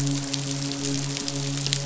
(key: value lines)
label: biophony, midshipman
recorder: SoundTrap 500